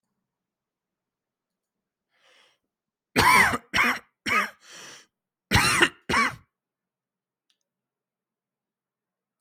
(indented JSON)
{
  "expert_labels": [
    {
      "quality": "good",
      "cough_type": "dry",
      "dyspnea": false,
      "wheezing": false,
      "stridor": false,
      "choking": false,
      "congestion": false,
      "nothing": true,
      "diagnosis": "COVID-19",
      "severity": "mild"
    }
  ],
  "age": 29,
  "gender": "male",
  "respiratory_condition": false,
  "fever_muscle_pain": false,
  "status": "healthy"
}